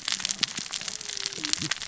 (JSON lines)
{"label": "biophony, cascading saw", "recorder": "SoundTrap 600 or HydroMoth"}